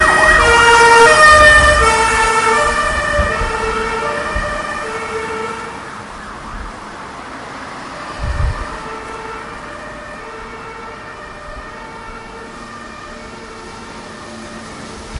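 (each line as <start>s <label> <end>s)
0.0s An emergency siren gradually fades away in a busy city. 15.2s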